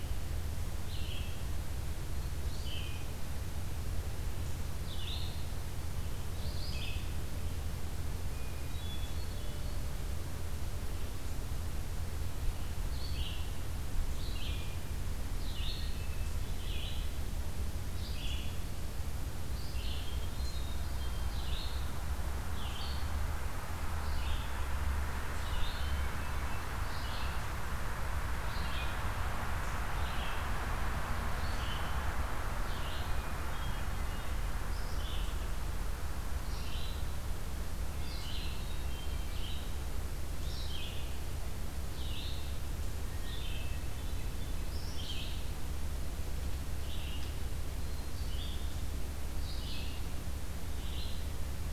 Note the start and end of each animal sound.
[0.00, 7.08] Red-eyed Vireo (Vireo olivaceus)
[8.32, 9.92] Hermit Thrush (Catharus guttatus)
[12.79, 33.22] Red-eyed Vireo (Vireo olivaceus)
[15.57, 16.68] Hermit Thrush (Catharus guttatus)
[19.98, 21.51] Hermit Thrush (Catharus guttatus)
[25.63, 26.71] Hermit Thrush (Catharus guttatus)
[33.04, 34.32] Hermit Thrush (Catharus guttatus)
[34.60, 51.73] Red-eyed Vireo (Vireo olivaceus)
[37.99, 39.41] Hermit Thrush (Catharus guttatus)
[43.10, 44.74] Hermit Thrush (Catharus guttatus)

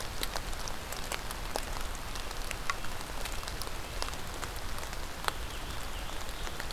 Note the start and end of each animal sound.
[2.35, 4.25] Red-breasted Nuthatch (Sitta canadensis)
[4.99, 6.72] Scarlet Tanager (Piranga olivacea)

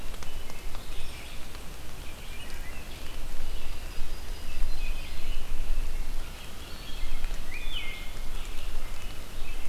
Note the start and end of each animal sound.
[0.00, 1.54] American Robin (Turdus migratorius)
[0.00, 9.69] Red-eyed Vireo (Vireo olivaceus)
[2.21, 2.91] Wood Thrush (Hylocichla mustelina)
[3.42, 4.95] Yellow-rumped Warbler (Setophaga coronata)
[4.15, 6.09] American Robin (Turdus migratorius)
[5.88, 9.11] American Crow (Corvus brachyrhynchos)
[7.28, 8.11] Wood Thrush (Hylocichla mustelina)
[8.24, 9.69] American Robin (Turdus migratorius)

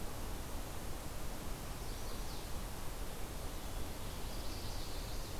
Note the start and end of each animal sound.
[1.62, 2.52] Chestnut-sided Warbler (Setophaga pensylvanica)
[4.08, 5.39] Chestnut-sided Warbler (Setophaga pensylvanica)

